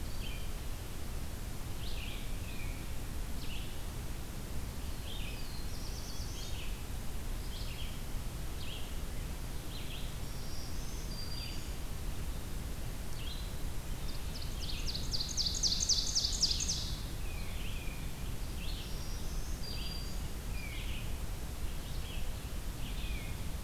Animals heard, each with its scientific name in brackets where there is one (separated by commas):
Black-throated Green Warbler (Setophaga virens), Tufted Titmouse (Baeolophus bicolor), Ovenbird (Seiurus aurocapilla), Black-throated Blue Warbler (Setophaga caerulescens), Red-eyed Vireo (Vireo olivaceus)